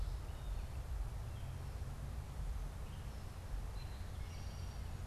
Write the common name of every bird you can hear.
Eastern Towhee